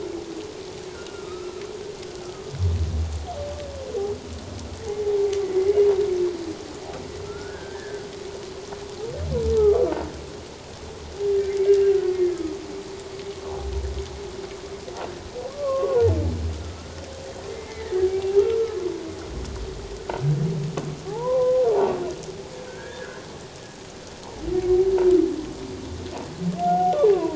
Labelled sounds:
7.2	8.1	humpback whale, 1.3 to 1.8 kHz
9.6	9.8	humpback whale, 1.1 to 1.3 kHz
12.1	12.4	humpback whale, 1.6 to 1.9 kHz
15.5	16.9	humpback whale, 0.84 to 1.4 kHz
17.5	18.4	humpback whale, 0.78 to 2.3 kHz
21.1	21.6	humpback whale, 0.78 to 1.1 kHz
22.7	23.2	humpback whale, 1.4 to 1.9 kHz
26.6	27.3	humpback whale, 0.78 to 1.5 kHz

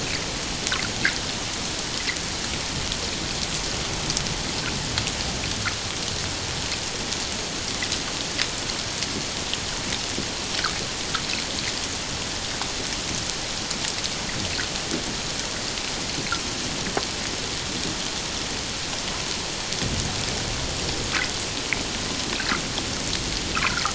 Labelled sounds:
23.6	23.8	humpback whale, 1.0 to 1.7 kHz

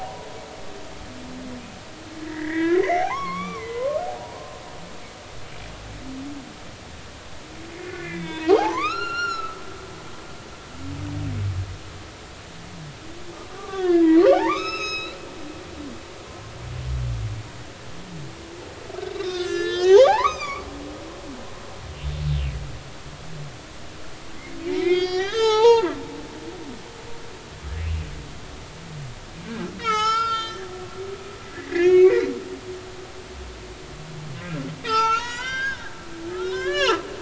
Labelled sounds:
2.2	4.0	humpback whale, 0.80 to 5.7 kHz
7.7	9.6	humpback whale, 0.80 to 7.1 kHz
13.6	15.2	humpback whale, 0.80 to 6.6 kHz
19.2	20.6	humpback whale, 0.80 to 8.0 kHz
24.6	26.2	humpback whale, 0.80 to 6.8 kHz
29.8	30.6	humpback whale, 0.80 to 7.2 kHz
31.5	32.2	humpback whale, 1.6 to 6.7 kHz
34.4	37.0	humpback whale, 0.83 to 7.0 kHz

